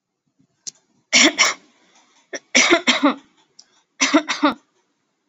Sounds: Cough